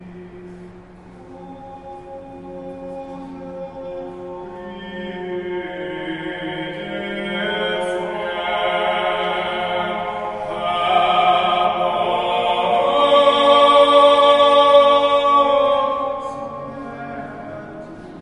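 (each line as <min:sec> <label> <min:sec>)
0:00.0 An Orthodox Christian choir is singing. 0:18.2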